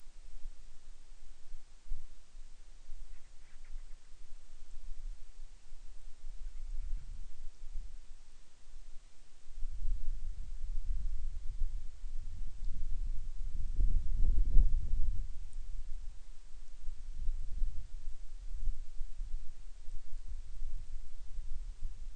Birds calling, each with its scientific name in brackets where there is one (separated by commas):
Band-rumped Storm-Petrel (Hydrobates castro)